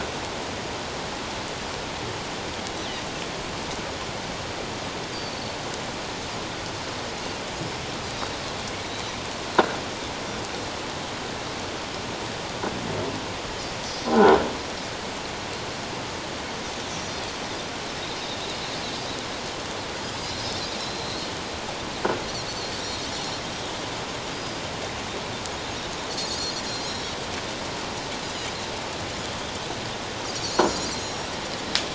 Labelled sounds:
5.1	5.6	Pacific white-sided dolphin, 4.3 to 4.8 kHz
13.8	14.1	Pacific white-sided dolphin, 5.7 to 6.2 kHz
14.0	14.3	croaking sound likely from a nearby submerged object, 0.78 to 1.1 kHz
16.9	17.1	Pacific white-sided dolphin, 6.1 to 6.4 kHz
20.8	21.3	Pacific white-sided dolphin, 3.8 to 4.3 kHz
22.8	23.4	Pacific white-sided dolphin, 3.6 to 4.4 kHz
24.3	24.6	Pacific white-sided dolphin, 4.8 to 5.0 kHz
26.2	27.2	Pacific white-sided dolphin, 3.8 to 6.9 kHz
30.4	31.2	Pacific white-sided dolphin, 3.9 to 7.2 kHz

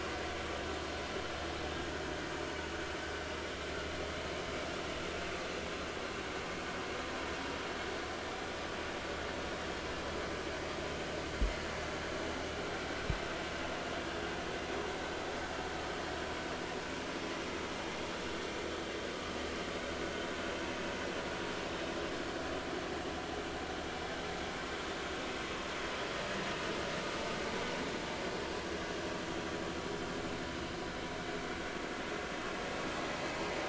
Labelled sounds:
28.7	29.0	vessel noise, 1.4 to 1.8 kHz

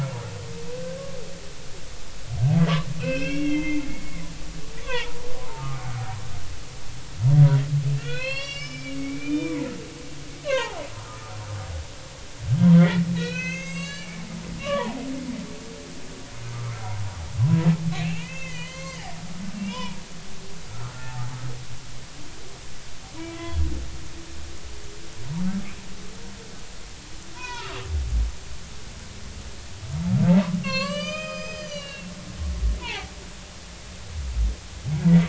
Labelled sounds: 0.7	1.0	humpback whale, 1.5 to 1.7 kHz
2.5	5.8	humpback whale, 0.83 to 5.6 kHz
8.0	9.6	humpback whale, 0.96 to 5.8 kHz
10.4	10.8	humpback whale, 0.80 to 4.4 kHz
13.2	15.1	humpback whale, 0.80 to 7.9 kHz
16.5	17.0	humpback whale, 1.0 to 1.4 kHz
17.4	17.7	humpback whale, 0.96 to 1.1 kHz
17.9	20.0	humpback whale, 0.86 to 6.5 kHz
20.7	21.3	humpback whale, 0.80 to 1.5 kHz
23.3	23.6	humpback whale, 3.3 to 3.4 kHz
27.3	27.8	humpback whale, 0.83 to 5.6 kHz
30.6	32.1	humpback whale, 0.99 to 6.9 kHz
32.8	33.1	humpback whale, 0.80 to 2.5 kHz

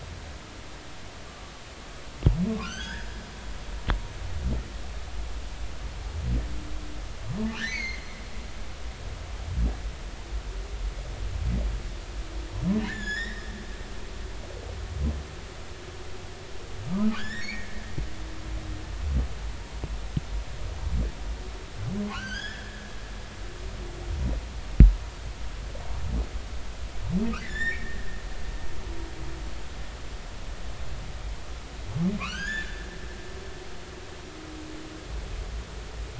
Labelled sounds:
2.6	3.1	humpback whale, 1.3 to 6.4 kHz
7.6	8.0	humpback whale, 1.4 to 6.7 kHz
12.9	13.4	humpback whale, 1.5 to 7.2 kHz
16.9	17.7	humpback whale, 0.90 to 5.6 kHz
22.1	22.9	humpback whale, 1.3 to 6.8 kHz
27.4	28.0	humpback whale, 1.7 to 5.6 kHz
32.2	32.9	humpback whale, 0.99 to 7.1 kHz

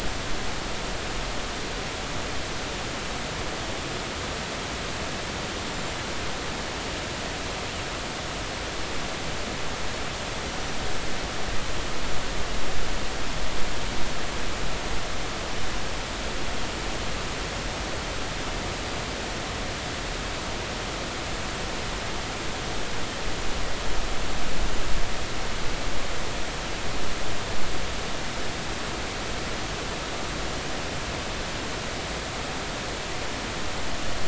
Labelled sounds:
10.4	10.8	killer whale, northern resident, 5.8 to 5.9 kHz

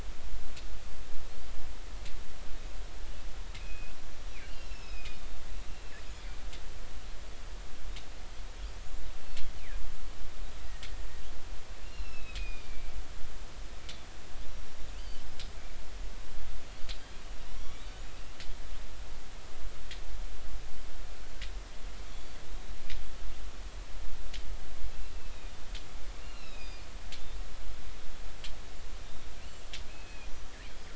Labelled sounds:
3.6	4.0	killer whale, northern resident, G clan, call N24i, 2.3 to 2.8 kHz
4.4	5.2	killer whale, northern resident, A clan, AA subclan, A05 pod, call N04, 2.4 to 5.5 kHz
5.7	6.0	killer whale, northern resident, 2.6 to 2.8 kHz
10.6	10.9	killer whale, northern resident, 1.8 to 2.0 kHz
11.8	13.2	killer whale, northern resident, A clan, AA subclan, A05 pod, call N04, 2.2 to 5.6 kHz
14.4	15.2	killer whale, northern resident, G clan, call N23i, 2.5 to 5.8 kHz
17.5	18.1	killer whale, northern resident, A clan, AB subclan, call N16, 2.1 to 5.8 kHz
18.0	18.4	killer whale, northern resident, A clan, AA subclan, A05 pod, call N04, 2.5 to 2.8 kHz
25.1	25.5	killer whale, northern resident, A clan, AA subclan, A05 pod, call N04, 2.4 to 2.7 kHz
26.2	26.8	killer whale, northern resident, A clan, AA subclan, A05 pod, call N04, 2.4 to 5.4 kHz
29.0	29.3	killer whale, northern resident, G clan, call N23i, 3.5 to 3.8 kHz
29.9	30.3	killer whale, northern resident, G clan, call N24ii, 2.4 to 4.4 kHz

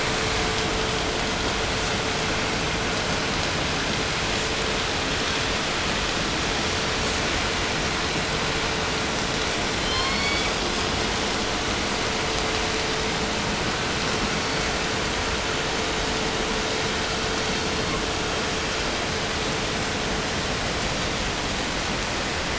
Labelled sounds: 9.6	10.8	killer whale, 0.63 to 6.2 kHz
13.8	14.9	killer whale, 3.7 to 6.2 kHz
17.1	18.1	killer whale, 3.0 to 4.8 kHz

